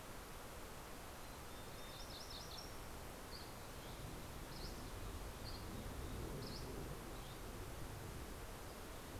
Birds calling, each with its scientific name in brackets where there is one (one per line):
Mountain Chickadee (Poecile gambeli)
MacGillivray's Warbler (Geothlypis tolmiei)
Dusky Flycatcher (Empidonax oberholseri)